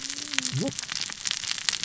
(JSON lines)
{"label": "biophony, cascading saw", "recorder": "SoundTrap 600 or HydroMoth"}